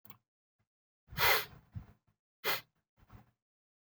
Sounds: Sniff